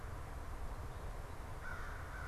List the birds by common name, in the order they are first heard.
American Crow